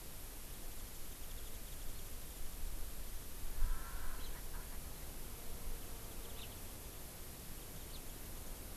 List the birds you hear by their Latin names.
Zosterops japonicus, Pternistis erckelii, Haemorhous mexicanus